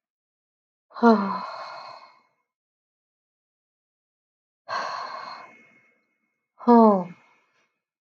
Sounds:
Sigh